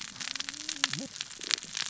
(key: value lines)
label: biophony, cascading saw
recorder: SoundTrap 600 or HydroMoth